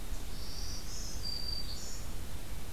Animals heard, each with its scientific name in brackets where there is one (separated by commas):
Black-throated Green Warbler (Setophaga virens)